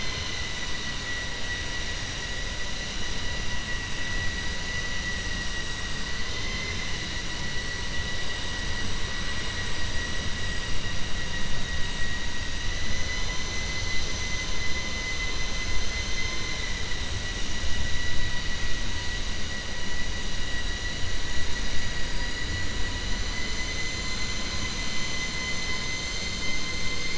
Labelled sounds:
6.2	6.9	vessel noise, 1.1 to 5.2 kHz
15.9	16.7	vessel noise, 1.1 to 4.3 kHz

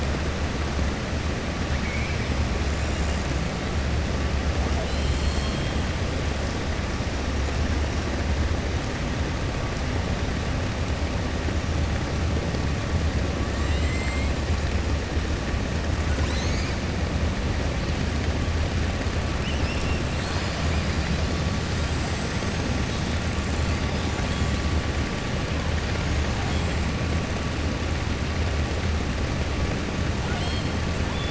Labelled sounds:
13.5	14.3	killer whale, 1.8 to 4.3 kHz
19.3	20.0	killer whale, 2.0 to 3.6 kHz
30.2	30.7	killer whale, 0.72 to 5.3 kHz

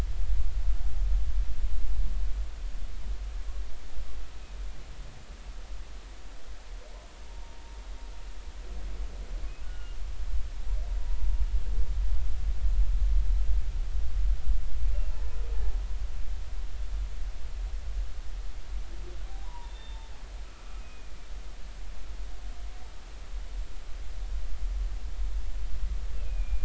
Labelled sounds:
7.3	7.6	humpback whale, 0.86 to 0.96 kHz
9.6	10.0	humpback whale, 1.4 to 2.9 kHz
11.0	11.3	humpback whale, 0.93 to 1.0 kHz
19.4	20.1	humpback whale, 0.86 to 3.6 kHz
20.8	21.1	humpback whale, 2.4 to 2.6 kHz
26.1	26.6	humpback whale, 2.3 to 2.8 kHz

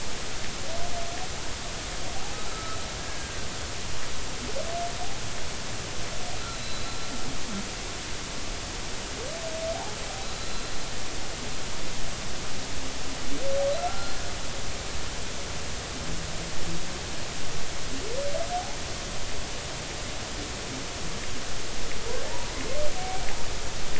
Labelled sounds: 2.1	3.4	humpback whale, 0.80 to 1.7 kHz
6.6	7.1	humpback whale, 3.8 to 4.1 kHz
10.4	10.7	humpback whale, 3.9 to 4.2 kHz
13.8	14.1	humpback whale, 1.3 to 1.4 kHz
18.5	18.8	humpback whale, 0.80 to 0.99 kHz
22.3	22.5	humpback whale, 0.83 to 1.0 kHz
23.0	23.3	humpback whale, 2.2 to 2.4 kHz

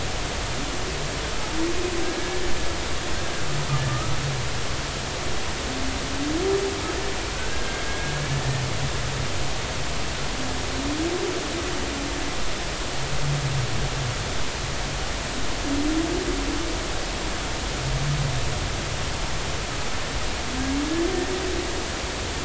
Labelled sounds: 7.3	8.1	humpback whale, 1.4 to 1.7 kHz
20.9	21.1	humpback whale, 1.7 to 1.8 kHz

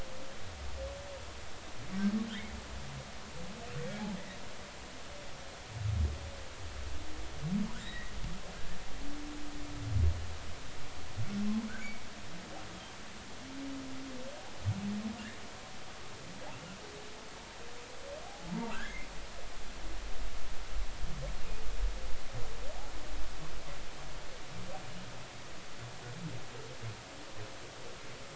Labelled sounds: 2.3	2.6	humpback whale, 1.7 to 2.3 kHz
7.8	8.1	humpback whale, 1.6 to 3.9 kHz
18.3	19.1	humpback whale, 0.80 to 2.5 kHz

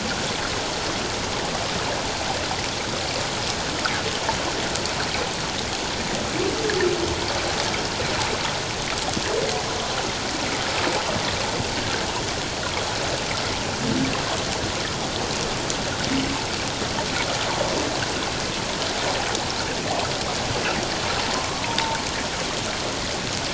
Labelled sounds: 21.2	21.5	humpback whale, 0.84 to 1.1 kHz

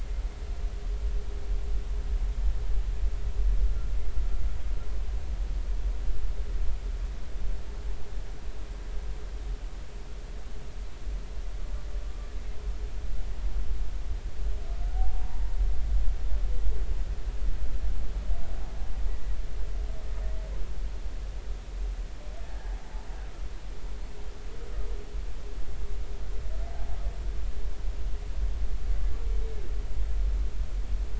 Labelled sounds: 14.9	15.4	humpback whale, 0.80 to 1.0 kHz
22.4	22.7	humpback whale, 1.6 to 1.9 kHz

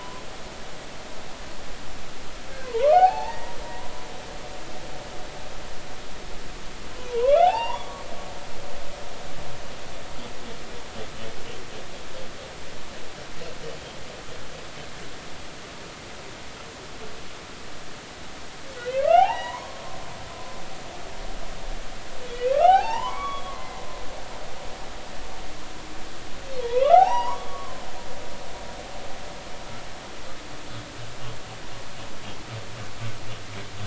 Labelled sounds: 2.6	3.9	humpback whale, 0.80 to 4.6 kHz
7.1	8.0	humpback whale, 0.80 to 3.6 kHz
18.8	19.8	humpback whale, 0.80 to 3.0 kHz
22.5	23.8	humpback whale, 0.80 to 3.4 kHz
26.6	27.8	humpback whale, 0.80 to 3.0 kHz

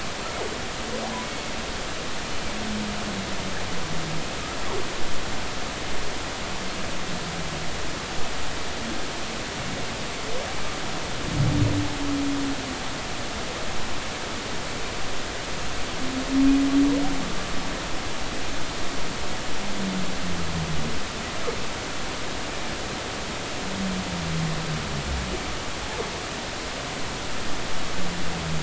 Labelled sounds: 1.2	1.5	humpback whale, 2.1 to 2.2 kHz

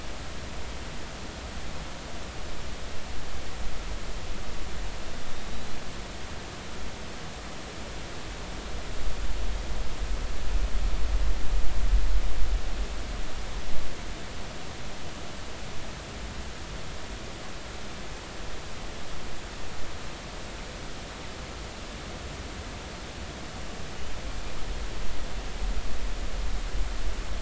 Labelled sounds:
5.3	5.8	killer whale, northern resident, 3.7 to 4.2 kHz

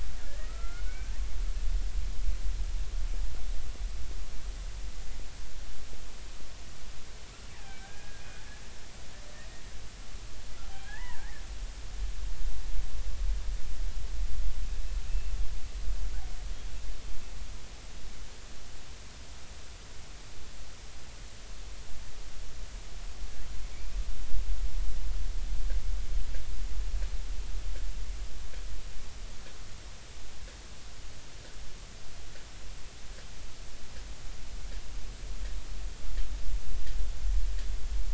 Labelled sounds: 0.2	1.1	killer whale, Bigg's (transient), 1.2 to 2.5 kHz
7.6	8.2	killer whale, Bigg's (transient), 1.5 to 1.7 kHz
10.7	11.4	killer whale, Bigg's (transient), 0.80 to 3.3 kHz
15.1	15.3	killer whale, Bigg's (transient), 2.6 to 2.7 kHz
23.7	24.0	killer whale, Bigg's (transient), 2.2 to 2.5 kHz

